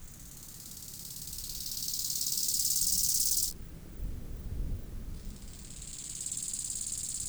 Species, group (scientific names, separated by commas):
Chorthippus biguttulus, Orthoptera